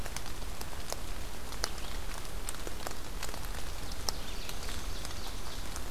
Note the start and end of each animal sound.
[1.55, 5.90] Red-eyed Vireo (Vireo olivaceus)
[3.25, 5.74] Ovenbird (Seiurus aurocapilla)

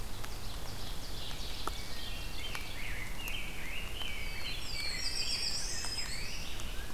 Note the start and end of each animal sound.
[0.00, 2.74] Ovenbird (Seiurus aurocapilla)
[1.57, 2.51] Wood Thrush (Hylocichla mustelina)
[2.27, 6.93] Rose-breasted Grosbeak (Pheucticus ludovicianus)
[3.96, 5.99] Black-throated Blue Warbler (Setophaga caerulescens)
[4.37, 6.29] Black-and-white Warbler (Mniotilta varia)
[5.49, 6.52] Black-throated Green Warbler (Setophaga virens)

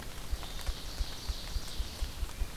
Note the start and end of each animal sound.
[0.00, 2.56] Red-eyed Vireo (Vireo olivaceus)
[0.00, 2.56] Ruffed Grouse (Bonasa umbellus)
[0.08, 2.41] Ovenbird (Seiurus aurocapilla)

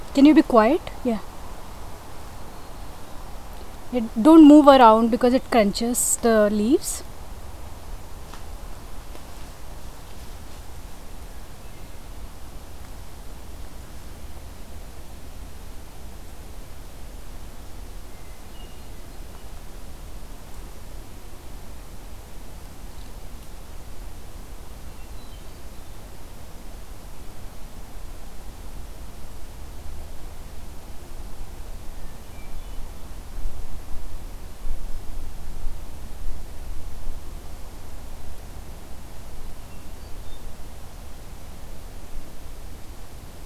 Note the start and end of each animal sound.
[2.17, 3.41] Black-throated Green Warbler (Setophaga virens)
[18.00, 19.25] Hermit Thrush (Catharus guttatus)
[24.57, 25.75] Hermit Thrush (Catharus guttatus)
[31.72, 33.29] Hermit Thrush (Catharus guttatus)
[39.49, 40.59] Hermit Thrush (Catharus guttatus)

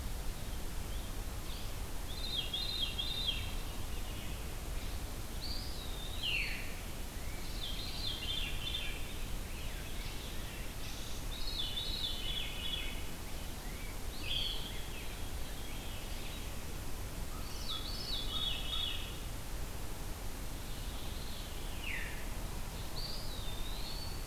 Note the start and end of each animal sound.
[1.95, 3.57] Veery (Catharus fuscescens)
[5.30, 6.74] Eastern Wood-Pewee (Contopus virens)
[6.12, 6.93] Veery (Catharus fuscescens)
[7.40, 9.06] Veery (Catharus fuscescens)
[11.22, 13.25] Veery (Catharus fuscescens)
[13.74, 15.03] Eastern Wood-Pewee (Contopus virens)
[14.08, 16.50] Veery (Catharus fuscescens)
[17.12, 19.30] Veery (Catharus fuscescens)
[17.15, 18.87] American Crow (Corvus brachyrhynchos)
[21.61, 22.54] Veery (Catharus fuscescens)
[22.83, 24.27] Eastern Wood-Pewee (Contopus virens)

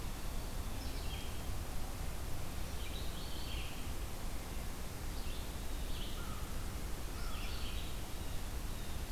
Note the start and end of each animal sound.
[0.00, 7.86] Red-eyed Vireo (Vireo olivaceus)
[5.98, 7.45] American Crow (Corvus brachyrhynchos)
[8.04, 9.04] Blue Jay (Cyanocitta cristata)

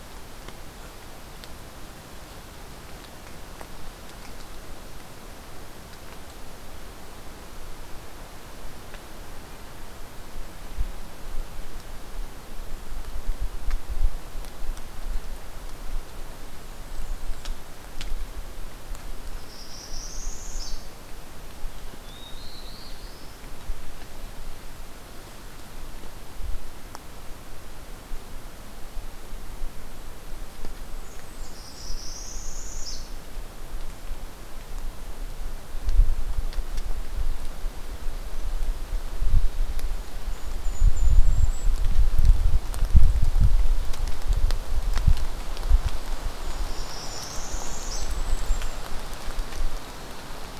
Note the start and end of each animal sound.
[19.21, 20.85] Northern Parula (Setophaga americana)
[21.97, 23.44] Black-throated Blue Warbler (Setophaga caerulescens)
[30.84, 32.04] Blackburnian Warbler (Setophaga fusca)
[31.32, 33.10] Northern Parula (Setophaga americana)
[39.87, 41.81] Golden-crowned Kinglet (Regulus satrapa)
[46.33, 48.79] Golden-crowned Kinglet (Regulus satrapa)
[46.63, 48.08] Northern Parula (Setophaga americana)

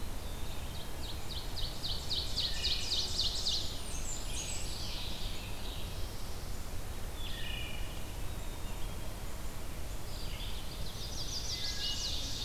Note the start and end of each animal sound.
[0.15, 5.41] Ovenbird (Seiurus aurocapilla)
[2.43, 3.09] Wood Thrush (Hylocichla mustelina)
[3.55, 4.94] Blackburnian Warbler (Setophaga fusca)
[3.86, 6.01] Scarlet Tanager (Piranga olivacea)
[4.62, 12.45] Red-eyed Vireo (Vireo olivaceus)
[5.45, 6.60] Black-throated Blue Warbler (Setophaga caerulescens)
[6.81, 8.13] Wood Thrush (Hylocichla mustelina)
[8.17, 9.41] Black-capped Chickadee (Poecile atricapillus)
[10.83, 12.45] Ovenbird (Seiurus aurocapilla)
[10.94, 12.26] Chestnut-sided Warbler (Setophaga pensylvanica)

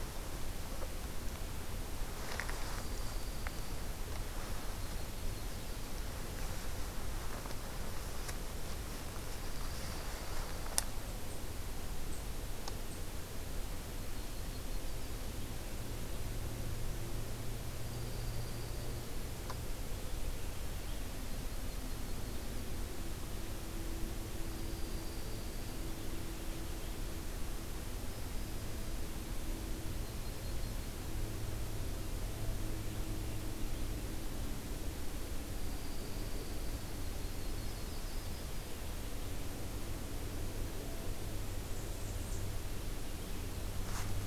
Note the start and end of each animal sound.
[2.04, 3.96] Dark-eyed Junco (Junco hyemalis)
[4.52, 6.02] Yellow-rumped Warbler (Setophaga coronata)
[9.19, 10.90] Dark-eyed Junco (Junco hyemalis)
[13.79, 15.28] Yellow-rumped Warbler (Setophaga coronata)
[17.69, 19.14] Dark-eyed Junco (Junco hyemalis)
[21.17, 22.77] Yellow-rumped Warbler (Setophaga coronata)
[24.37, 26.22] Dark-eyed Junco (Junco hyemalis)
[29.66, 31.36] Yellow-rumped Warbler (Setophaga coronata)
[35.06, 36.78] Dark-eyed Junco (Junco hyemalis)
[36.84, 38.70] Yellow-rumped Warbler (Setophaga coronata)
[41.30, 42.65] Blackburnian Warbler (Setophaga fusca)

